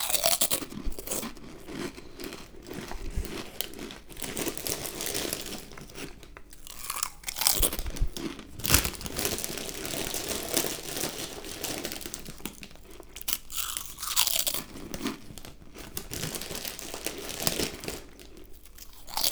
Is the room crowded?
no